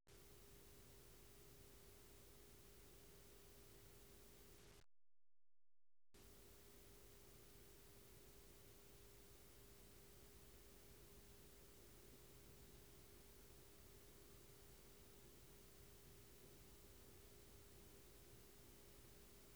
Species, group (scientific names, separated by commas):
Omocestus viridulus, Orthoptera